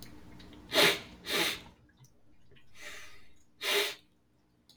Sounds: Sniff